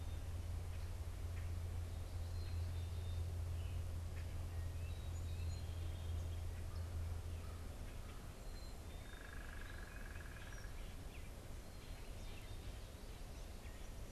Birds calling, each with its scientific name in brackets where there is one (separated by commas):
unidentified bird, Gray Catbird (Dumetella carolinensis), Black-capped Chickadee (Poecile atricapillus)